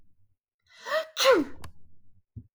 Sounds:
Sneeze